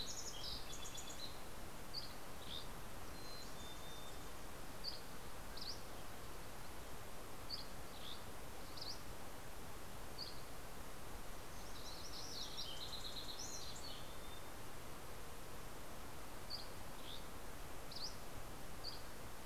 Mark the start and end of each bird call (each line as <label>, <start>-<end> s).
Fox Sparrow (Passerella iliaca), 0.0-1.8 s
Dusky Flycatcher (Empidonax oberholseri), 1.6-10.5 s
Mountain Chickadee (Poecile gambeli), 2.8-4.6 s
Fox Sparrow (Passerella iliaca), 11.2-14.7 s
Mountain Chickadee (Poecile gambeli), 13.0-14.8 s
Dusky Flycatcher (Empidonax oberholseri), 15.6-19.4 s